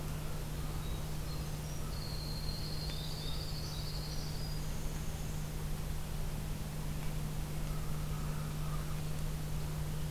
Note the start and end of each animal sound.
[0.00, 2.13] American Crow (Corvus brachyrhynchos)
[0.76, 5.56] Winter Wren (Troglodytes hiemalis)
[2.51, 4.36] Dark-eyed Junco (Junco hyemalis)
[3.13, 3.89] American Crow (Corvus brachyrhynchos)
[7.56, 9.03] American Crow (Corvus brachyrhynchos)

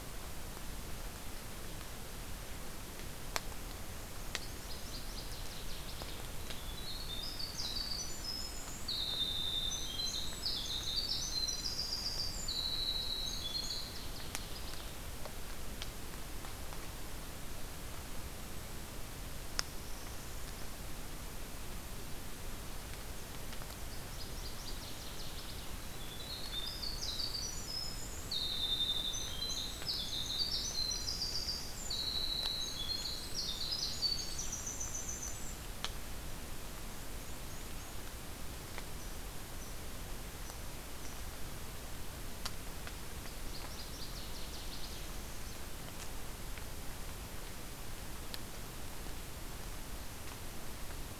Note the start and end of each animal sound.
[4.22, 6.30] Northern Waterthrush (Parkesia noveboracensis)
[6.42, 14.00] Winter Wren (Troglodytes hiemalis)
[13.18, 14.92] Northern Waterthrush (Parkesia noveboracensis)
[19.23, 20.78] Northern Parula (Setophaga americana)
[23.64, 25.80] Northern Waterthrush (Parkesia noveboracensis)
[25.95, 35.63] Winter Wren (Troglodytes hiemalis)
[32.79, 34.63] Northern Waterthrush (Parkesia noveboracensis)
[36.66, 38.08] Black-and-white Warbler (Mniotilta varia)
[43.11, 45.21] Northern Waterthrush (Parkesia noveboracensis)

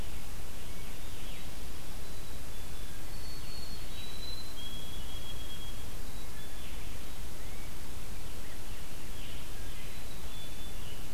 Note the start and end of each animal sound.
[1.10, 1.50] Veery (Catharus fuscescens)
[1.85, 3.13] Black-capped Chickadee (Poecile atricapillus)
[2.93, 6.09] White-throated Sparrow (Zonotrichia albicollis)
[7.20, 9.78] Rose-breasted Grosbeak (Pheucticus ludovicianus)
[9.64, 11.13] White-throated Sparrow (Zonotrichia albicollis)

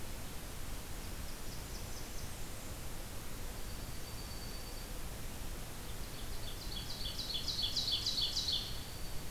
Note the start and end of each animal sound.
[0.83, 2.82] Blackburnian Warbler (Setophaga fusca)
[3.38, 5.04] Dark-eyed Junco (Junco hyemalis)
[5.91, 8.77] Ovenbird (Seiurus aurocapilla)
[8.49, 9.30] Black-throated Green Warbler (Setophaga virens)

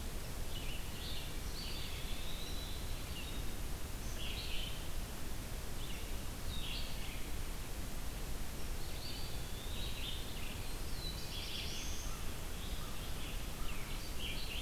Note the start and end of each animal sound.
[0.00, 14.61] Red-eyed Vireo (Vireo olivaceus)
[0.69, 1.38] Wood Thrush (Hylocichla mustelina)
[1.36, 2.76] Eastern Wood-Pewee (Contopus virens)
[8.70, 10.28] Eastern Wood-Pewee (Contopus virens)
[10.41, 12.26] Black-throated Blue Warbler (Setophaga caerulescens)
[12.04, 13.86] American Crow (Corvus brachyrhynchos)

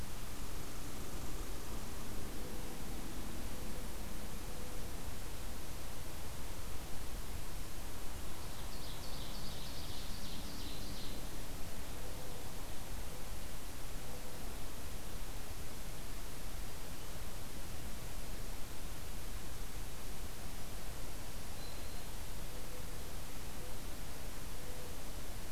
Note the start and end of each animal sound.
[0.00, 2.52] Red Squirrel (Tamiasciurus hudsonicus)
[2.21, 4.83] Mourning Dove (Zenaida macroura)
[8.35, 11.14] Ovenbird (Seiurus aurocapilla)
[12.05, 14.47] Mourning Dove (Zenaida macroura)
[21.00, 22.34] Black-throated Green Warbler (Setophaga virens)
[21.68, 25.03] Mourning Dove (Zenaida macroura)

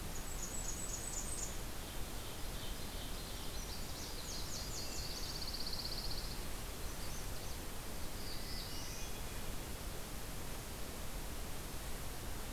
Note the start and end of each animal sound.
[0.00, 1.78] Blackburnian Warbler (Setophaga fusca)
[1.47, 3.72] Ovenbird (Seiurus aurocapilla)
[3.52, 5.18] Nashville Warbler (Leiothlypis ruficapilla)
[4.78, 6.47] Pine Warbler (Setophaga pinus)
[6.82, 7.58] Magnolia Warbler (Setophaga magnolia)
[7.99, 9.26] Black-throated Blue Warbler (Setophaga caerulescens)
[8.27, 9.48] Hermit Thrush (Catharus guttatus)

